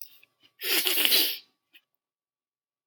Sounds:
Sniff